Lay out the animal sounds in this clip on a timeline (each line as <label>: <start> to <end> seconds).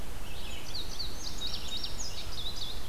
Red-eyed Vireo (Vireo olivaceus): 0.0 to 2.9 seconds
Indigo Bunting (Passerina cyanea): 0.1 to 2.9 seconds